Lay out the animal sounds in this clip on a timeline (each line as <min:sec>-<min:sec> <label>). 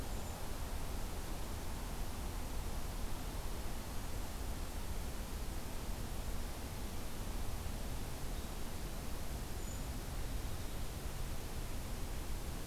0:00.0-0:00.5 Brown Creeper (Certhia americana)
0:09.5-0:10.0 Brown Creeper (Certhia americana)